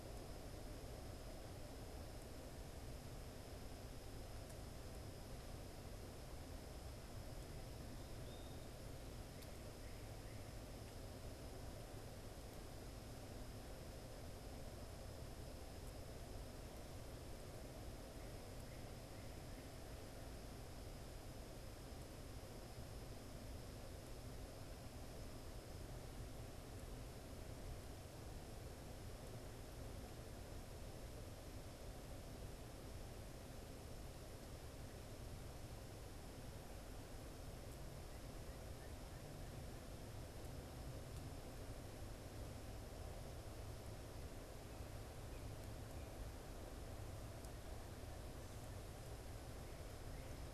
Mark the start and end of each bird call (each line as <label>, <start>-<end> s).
unidentified bird, 8.2-8.7 s
Northern Cardinal (Cardinalis cardinalis), 9.2-10.6 s